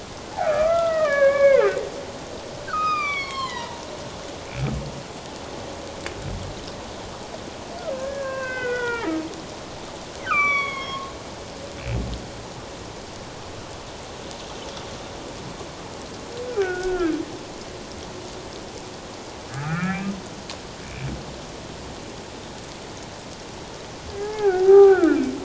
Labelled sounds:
0.3	1.7	humpback whale, 1.0 to 2.6 kHz
2.7	3.8	humpback whale, 0.88 to 6.0 kHz
7.9	9.2	humpback whale, 0.81 to 3.5 kHz
10.2	11.1	humpback whale, 1.0 to 5.8 kHz
16.6	17.2	humpback whale, 1.2 to 1.7 kHz
19.5	20.1	humpback whale, 1.2 to 2.7 kHz
24.1	25.2	humpback whale, 0.78 to 1.8 kHz

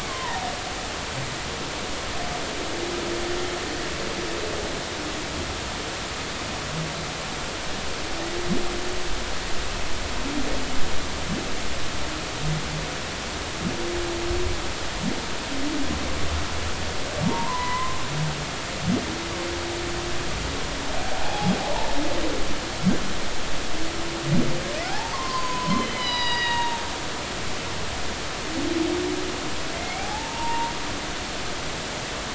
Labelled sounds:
17.2	18.0	humpback whale, 0.86 to 2.1 kHz
21.1	21.5	humpback whale, 0.80 to 0.93 kHz
24.8	27.7	humpback whale, 0.80 to 6.7 kHz
29.7	30.7	humpback whale, 0.80 to 2.5 kHz

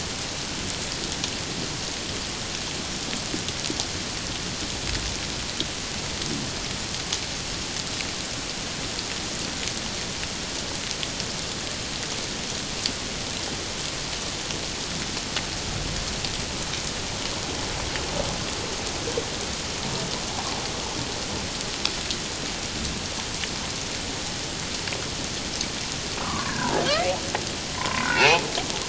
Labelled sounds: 26.2	27.1	humpback whale, 0.97 to 2.4 kHz
27.8	28.5	humpback whale, 0.78 to 2.9 kHz

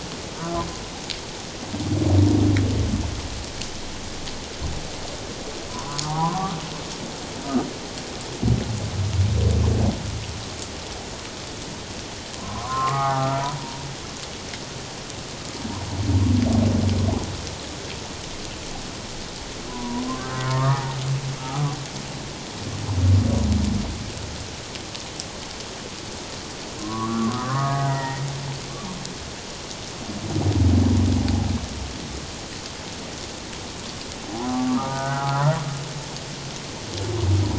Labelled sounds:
5.7	6.6	humpback whale, 0.78 to 1.3 kHz
12.3	13.4	humpback whale, 0.78 to 1.5 kHz
19.7	21.0	humpback whale, 0.78 to 1.9 kHz
21.4	21.8	humpback whale, 1.1 to 1.4 kHz
26.8	28.2	humpback whale, 0.78 to 2.1 kHz
34.3	35.6	humpback whale, 0.78 to 1.6 kHz

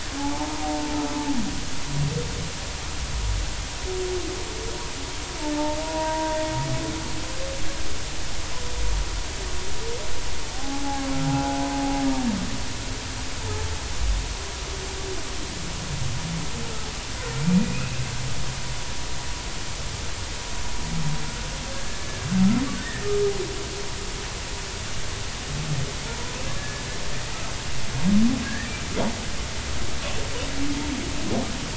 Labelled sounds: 0.1	0.7	humpback whale, 0.80 to 0.96 kHz
5.8	6.4	humpback whale, 0.90 to 0.99 kHz
10.5	11.7	humpback whale, 0.80 to 1.5 kHz
17.3	18.0	humpback whale, 2.2 to 2.7 kHz
21.7	22.3	humpback whale, 1.6 to 1.8 kHz
22.8	23.1	humpback whale, 1.7 to 1.9 kHz
26.6	26.8	humpback whale, 1.6 to 1.8 kHz
28.4	28.7	humpback whale, 1.5 to 1.9 kHz

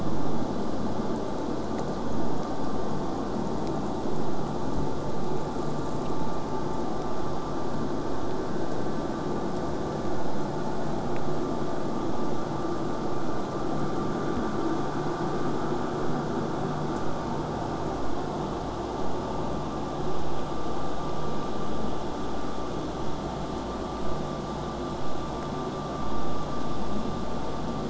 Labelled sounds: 0.0	1.0	vessel noise, 0.15 to 7.1 kHz
3.8	6.8	killer whale, southern resident, J pod, 6.0 to 8.0 kHz

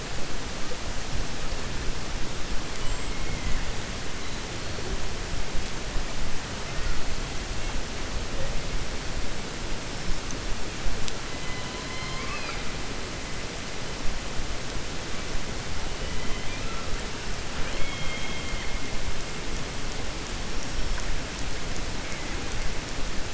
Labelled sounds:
11.8	12.6	killer whale, 0.62 to 5.1 kHz
17.5	18.7	killer whale, 1.2 to 4.2 kHz

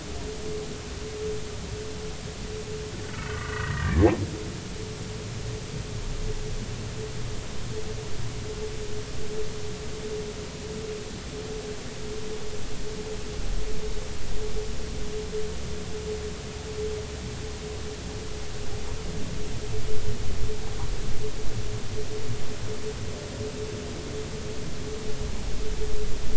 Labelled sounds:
3.1	4.1	humpback whale, 1.1 to 2.1 kHz

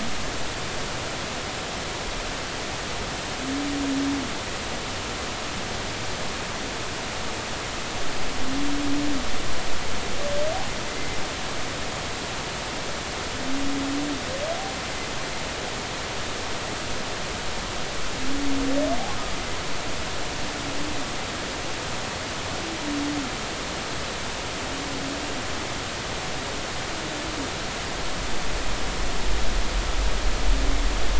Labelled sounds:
10.9	11.2	humpback whale, 2.0 to 2.2 kHz

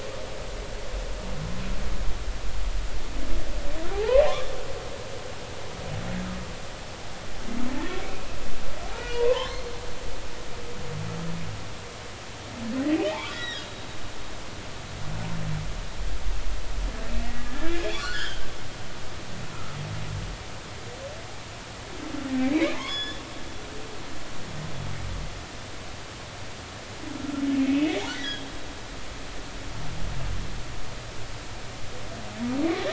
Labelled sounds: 3.9	4.2	humpback whale, 0.80 to 1.1 kHz
8.9	9.7	humpback whale, 0.80 to 4.3 kHz
12.9	13.6	humpback whale, 0.80 to 4.0 kHz
17.4	18.4	humpback whale, 1.1 to 5.9 kHz
19.5	19.8	humpback whale, 1.2 to 1.4 kHz
22.5	23.2	humpback whale, 0.86 to 5.2 kHz
27.2	28.4	humpback whale, 1.3 to 2.8 kHz

